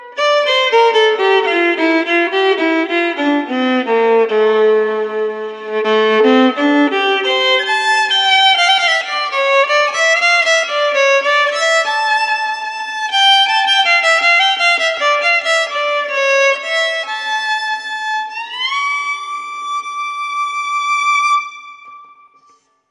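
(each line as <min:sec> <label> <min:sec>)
0:00.0 A violin plays a slow, melodic, and emotional tune that echoes slightly. 0:22.9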